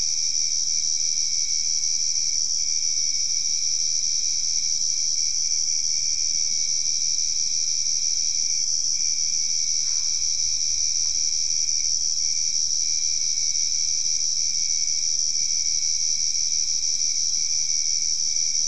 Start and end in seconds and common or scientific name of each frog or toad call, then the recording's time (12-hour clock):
9.7	10.4	Boana albopunctata
9:30pm